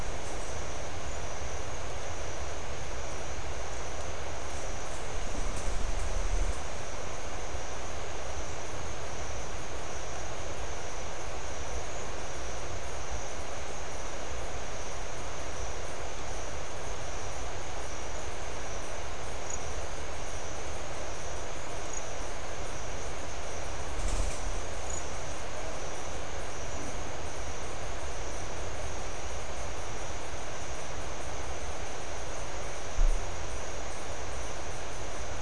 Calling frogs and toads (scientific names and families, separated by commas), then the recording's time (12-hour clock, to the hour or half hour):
none
~6pm